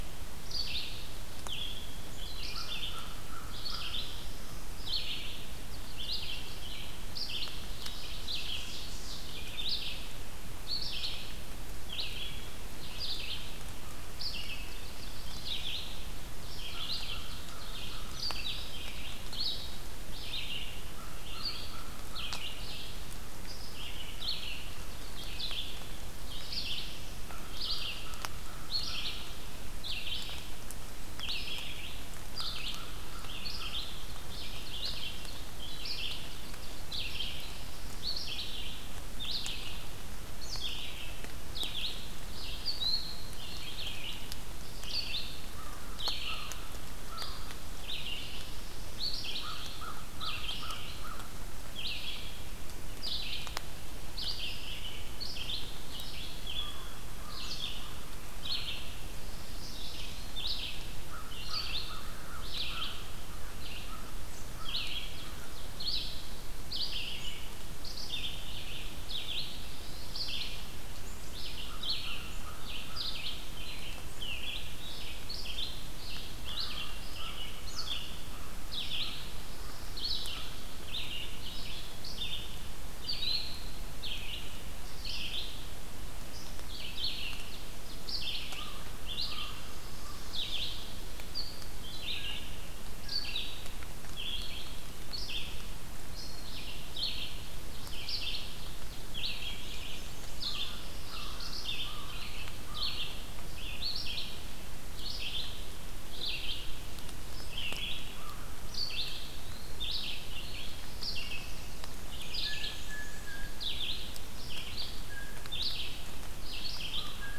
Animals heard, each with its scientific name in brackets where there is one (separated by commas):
Ovenbird (Seiurus aurocapilla), Black-and-white Warbler (Mniotilta varia), Blue Jay (Cyanocitta cristata), American Crow (Corvus brachyrhynchos), Eastern Wood-Pewee (Contopus virens), Red-eyed Vireo (Vireo olivaceus)